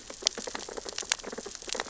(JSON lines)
{"label": "biophony, sea urchins (Echinidae)", "recorder": "SoundTrap 600 or HydroMoth"}